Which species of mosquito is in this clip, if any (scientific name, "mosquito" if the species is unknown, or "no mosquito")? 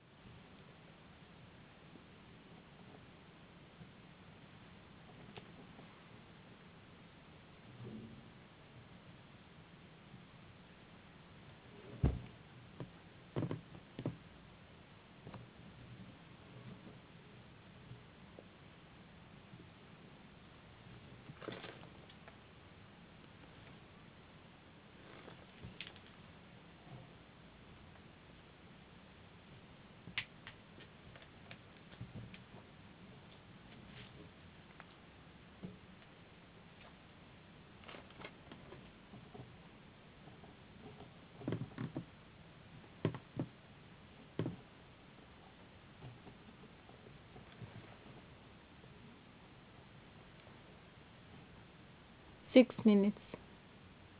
no mosquito